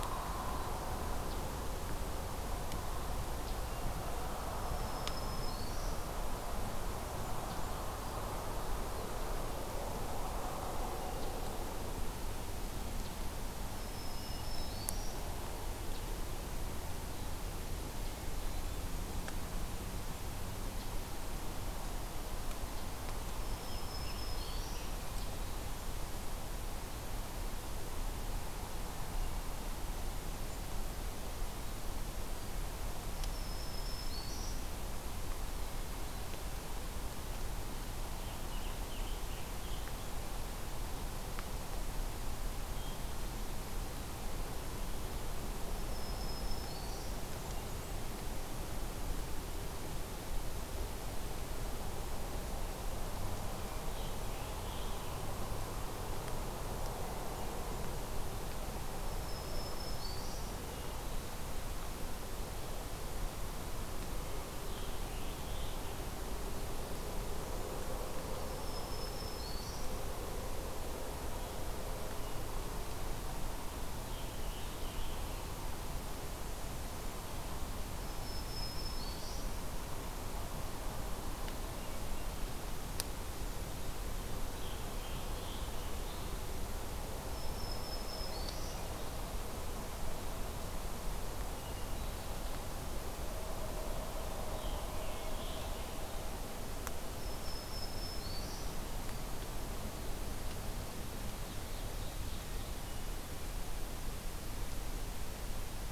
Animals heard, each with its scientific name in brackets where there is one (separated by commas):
American Robin (Turdus migratorius), Hermit Thrush (Catharus guttatus), Ovenbird (Seiurus aurocapilla), Black-throated Green Warbler (Setophaga virens)